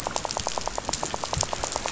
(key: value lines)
label: biophony, rattle
recorder: SoundTrap 500